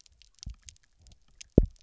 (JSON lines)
{"label": "biophony, double pulse", "recorder": "SoundTrap 300"}